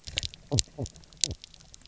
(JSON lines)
{"label": "biophony, knock croak", "recorder": "SoundTrap 300"}